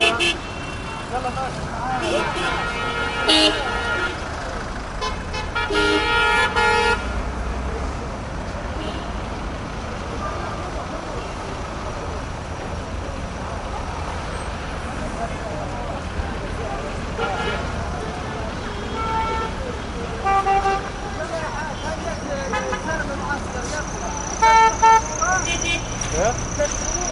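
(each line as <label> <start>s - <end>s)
A car horn honks. 0.0s - 0.4s
Middle Eastern men speaking while a car honks in the distance. 0.4s - 3.2s
A car horn sounds. 3.3s - 4.2s
A truck engine is humming. 4.2s - 5.0s
A car horn sounds in the distance. 5.0s - 5.7s
A car horn honks repeatedly. 5.7s - 7.0s
Traffic noise with faint car honking and distant people talking. 7.0s - 17.1s
A car horn honks in the distance. 17.2s - 17.7s
Truck motor humming with a car honking in the distance. 17.7s - 18.9s
A car horn sounds in the distance. 18.9s - 19.6s
A truck engine is humming. 19.6s - 20.2s
A car horn honks repeatedly. 20.2s - 20.9s
Traffic noises with distant car honking and people speaking in Arabic. 20.9s - 24.4s
A car horn honks repeatedly. 24.4s - 25.1s
Truck engine humming and whistling with a distant car horn. 25.1s - 27.1s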